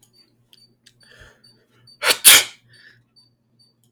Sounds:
Sneeze